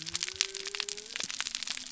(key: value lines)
label: biophony
recorder: SoundTrap 300